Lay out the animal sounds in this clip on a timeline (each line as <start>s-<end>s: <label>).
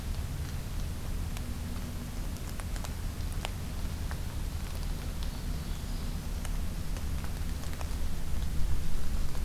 5.2s-6.2s: Ovenbird (Seiurus aurocapilla)